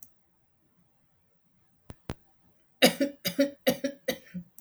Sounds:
Cough